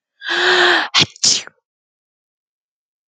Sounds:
Sneeze